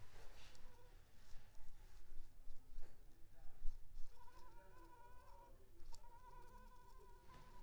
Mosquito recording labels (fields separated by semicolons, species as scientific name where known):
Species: Anopheles arabiensis; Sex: female; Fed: unfed; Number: one; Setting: cup